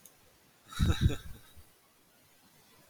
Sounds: Laughter